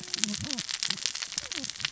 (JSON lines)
{"label": "biophony, cascading saw", "recorder": "SoundTrap 600 or HydroMoth"}